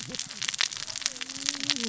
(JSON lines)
{"label": "biophony, cascading saw", "recorder": "SoundTrap 600 or HydroMoth"}